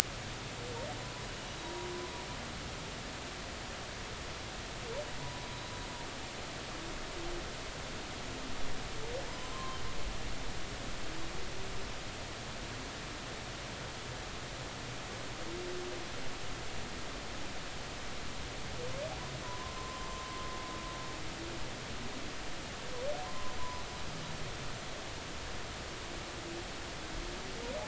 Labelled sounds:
9.3	9.8	humpback whale, 0.93 to 1.1 kHz
19.4	20.1	humpback whale, 0.93 to 1.1 kHz
23.2	23.8	humpback whale, 0.86 to 1.2 kHz

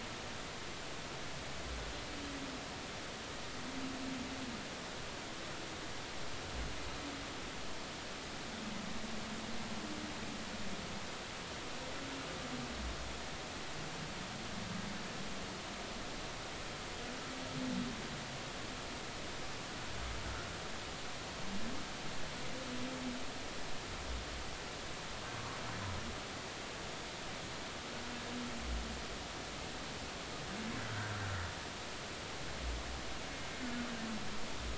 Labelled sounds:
30.9	31.2	humpback whale, 1.3 to 1.6 kHz

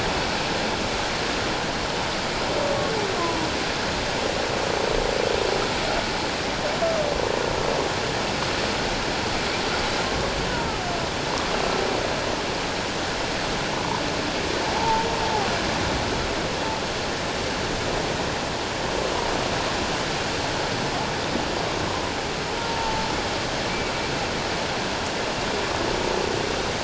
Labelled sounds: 3.1	3.5	humpback whale, 0.91 to 1.1 kHz
14.7	15.1	humpback whale, 0.78 to 0.97 kHz
22.6	23.1	humpback whale, 0.84 to 0.97 kHz

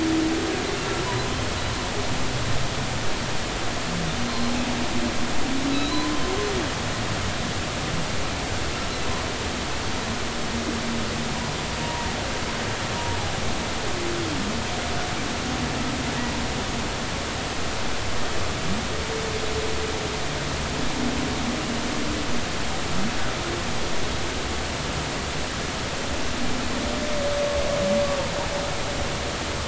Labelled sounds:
4.2	4.5	humpback whale, 4.1 to 4.2 kHz
5.7	6.1	humpback whale, 3.8 to 4.1 kHz
11.8	12.1	humpback whale, 0.86 to 0.99 kHz

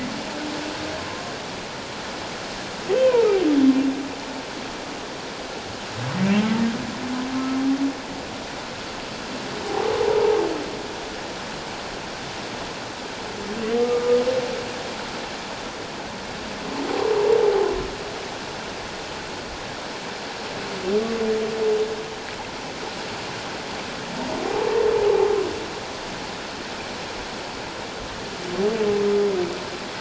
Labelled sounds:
1.0	1.2	humpback whale, 0.97 to 1.1 kHz
2.9	3.2	humpback whale, 2.2 to 2.8 kHz
7.3	7.6	humpback whale, 1.3 to 1.4 kHz
13.8	14.2	humpback whale, 1.2 to 1.3 kHz

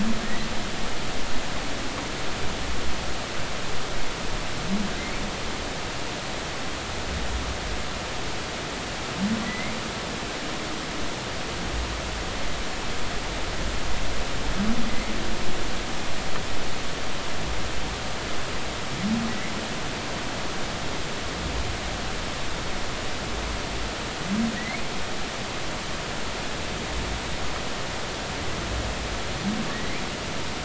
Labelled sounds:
0.2	0.5	humpback whale, 1.8 to 2.0 kHz
5.0	5.2	humpback whale, 2.0 to 2.4 kHz
9.5	9.7	humpback whale, 1.9 to 2.2 kHz
19.3	19.5	humpback whale, 1.9 to 2.2 kHz
24.6	24.8	humpback whale, 1.8 to 2.3 kHz
29.7	30.0	humpback whale, 1.7 to 2.5 kHz

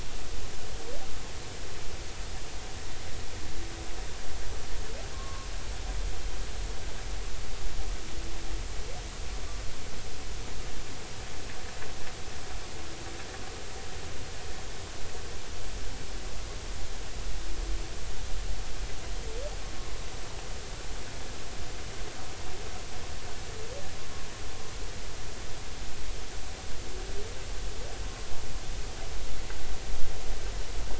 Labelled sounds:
5.1	5.5	humpback whale, 1.0 to 1.2 kHz

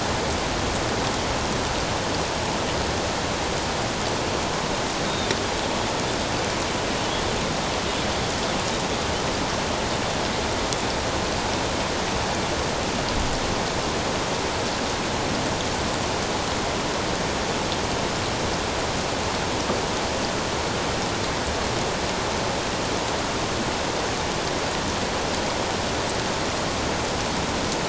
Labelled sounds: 5.0	5.3	Pacific white-sided dolphin, 3.5 to 3.8 kHz

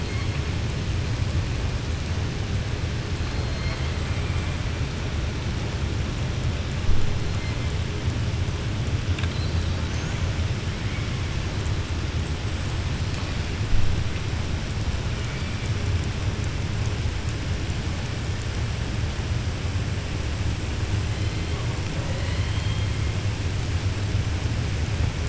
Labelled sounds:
21.9	22.9	killer whale, southern resident, 0.53 to 4.3 kHz

